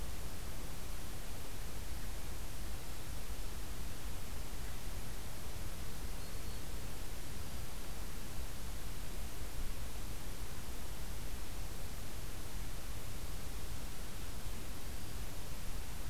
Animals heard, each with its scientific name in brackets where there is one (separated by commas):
Black-throated Green Warbler (Setophaga virens)